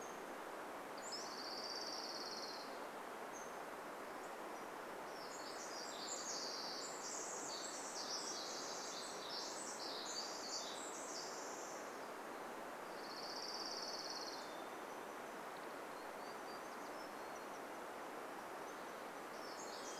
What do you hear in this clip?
Hermit Thrush song, Pacific-slope Flycatcher song, Orange-crowned Warbler song, Pacific Wren song, Golden-crowned Kinglet call, unidentified sound, warbler song